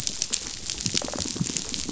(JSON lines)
{"label": "biophony, rattle response", "recorder": "SoundTrap 500"}